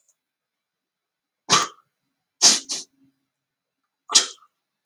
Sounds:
Sneeze